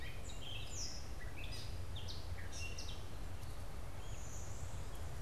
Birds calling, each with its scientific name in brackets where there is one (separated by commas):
Gray Catbird (Dumetella carolinensis), Blue-winged Warbler (Vermivora cyanoptera)